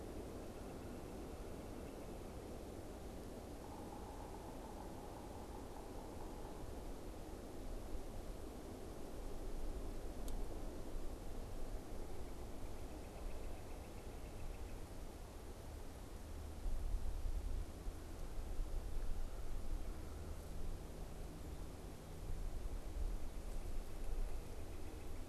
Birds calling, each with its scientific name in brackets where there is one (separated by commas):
Northern Flicker (Colaptes auratus), Yellow-bellied Sapsucker (Sphyrapicus varius)